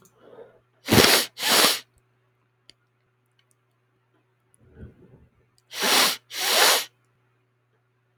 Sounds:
Sniff